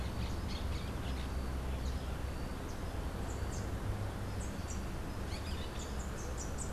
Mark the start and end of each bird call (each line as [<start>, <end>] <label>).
[0.00, 6.72] Orange-fronted Parakeet (Eupsittula canicularis)
[0.00, 6.72] Rufous-capped Warbler (Basileuterus rufifrons)